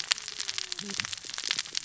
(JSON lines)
{"label": "biophony, cascading saw", "recorder": "SoundTrap 600 or HydroMoth"}